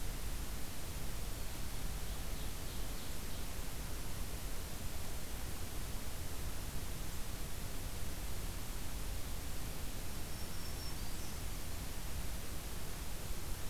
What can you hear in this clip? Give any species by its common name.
Ovenbird, Black-throated Green Warbler